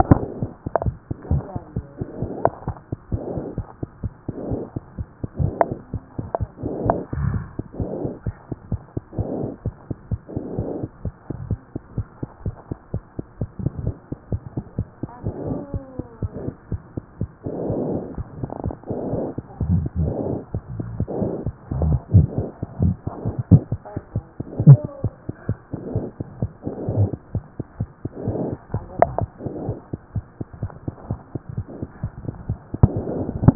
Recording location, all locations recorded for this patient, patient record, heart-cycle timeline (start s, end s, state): mitral valve (MV)
aortic valve (AV)+mitral valve (MV)
#Age: Infant
#Sex: Female
#Height: nan
#Weight: 9.7 kg
#Pregnancy status: False
#Murmur: Absent
#Murmur locations: nan
#Most audible location: nan
#Systolic murmur timing: nan
#Systolic murmur shape: nan
#Systolic murmur grading: nan
#Systolic murmur pitch: nan
#Systolic murmur quality: nan
#Diastolic murmur timing: nan
#Diastolic murmur shape: nan
#Diastolic murmur grading: nan
#Diastolic murmur pitch: nan
#Diastolic murmur quality: nan
#Outcome: Abnormal
#Campaign: 2014 screening campaign
0.00	10.95	unannotated
10.95	11.04	diastole
11.04	11.14	S1
11.14	11.28	systole
11.28	11.36	S2
11.36	11.50	diastole
11.50	11.60	S1
11.60	11.72	systole
11.72	11.80	S2
11.80	11.96	diastole
11.96	12.06	S1
12.06	12.20	systole
12.20	12.28	S2
12.28	12.45	diastole
12.45	12.56	S1
12.56	12.70	systole
12.70	12.78	S2
12.78	12.93	diastole
12.93	13.02	S1
13.02	13.18	systole
13.18	13.25	S2
13.25	13.42	diastole
13.42	33.55	unannotated